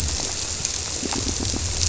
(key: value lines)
label: biophony
recorder: SoundTrap 300